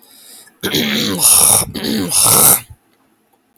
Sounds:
Throat clearing